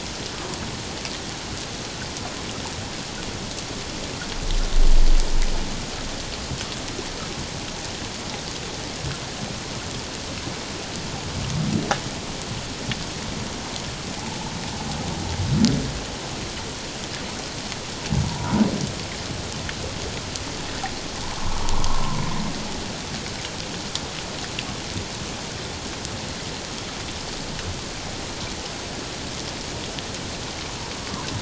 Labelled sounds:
18.3	18.5	humpback whale, 0.91 to 1.0 kHz
21.2	22.2	humpback whale, 0.84 to 1.2 kHz

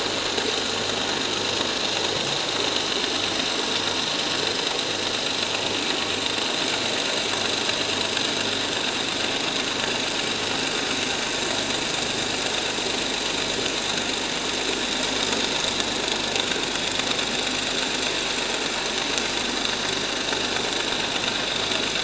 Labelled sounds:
16.0	16.3	vessel noise, 4.3 to 4.5 kHz

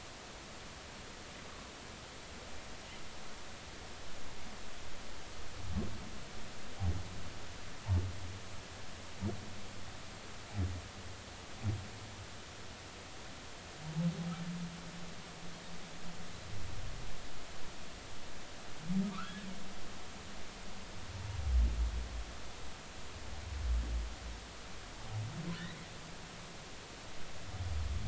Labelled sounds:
19.2	19.5	humpback whale, 1.6 to 1.8 kHz
25.6	25.9	humpback whale, 1.7 to 2.2 kHz

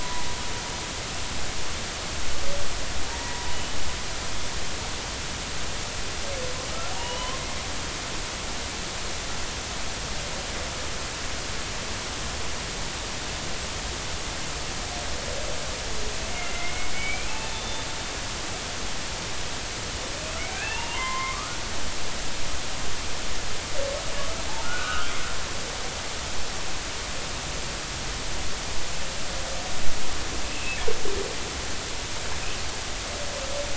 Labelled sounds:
0.0	0.9	humpback whale, 0.93 to 1.1 kHz
3.1	3.5	humpback whale, 0.90 to 2.0 kHz
7.0	7.4	humpback whale, 0.90 to 3.1 kHz
16.3	17.9	humpback whale, 2.0 to 3.6 kHz
20.5	21.6	humpback whale, 0.86 to 2.9 kHz
24.6	25.1	humpback whale, 1.1 to 1.6 kHz
30.4	30.8	humpback whale, 2.5 to 2.8 kHz

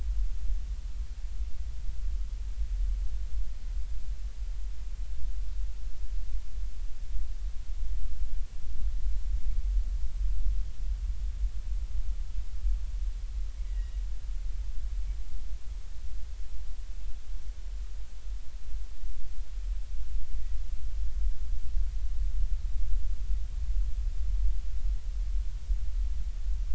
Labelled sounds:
13.6	14.0	Pacific white-sided dolphin, 1.8 to 2.0 kHz

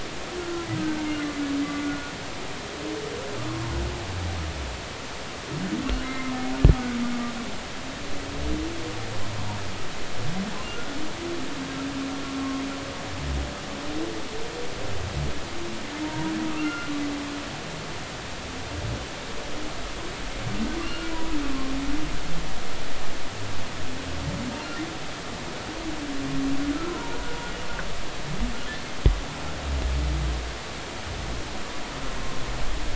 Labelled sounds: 0.4	2.1	humpback whale, 1.3 to 2.1 kHz
3.5	3.7	humpback whale, 0.99 to 1.1 kHz
6.0	6.3	humpback whale, 2.0 to 2.2 kHz
10.7	11.0	humpback whale, 1.3 to 1.5 kHz
12.4	12.6	humpback whale, 1.0 to 1.1 kHz
16.0	16.9	humpback whale, 0.90 to 2.8 kHz
20.8	21.4	humpback whale, 0.93 to 2.9 kHz
26.9	27.2	humpback whale, 0.90 to 1.1 kHz

